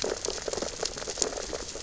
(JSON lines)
{"label": "biophony, sea urchins (Echinidae)", "recorder": "SoundTrap 600 or HydroMoth"}